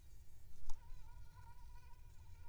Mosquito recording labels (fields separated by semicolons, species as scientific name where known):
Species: Aedes aegypti; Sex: female; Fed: unfed; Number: one; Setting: cup